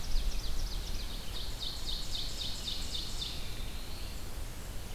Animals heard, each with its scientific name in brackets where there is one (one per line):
Red-eyed Vireo (Vireo olivaceus)
Black-throated Blue Warbler (Setophaga caerulescens)
Ovenbird (Seiurus aurocapilla)